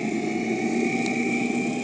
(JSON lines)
{"label": "anthrophony, boat engine", "recorder": "HydroMoth"}